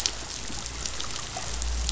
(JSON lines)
{"label": "biophony", "recorder": "SoundTrap 500"}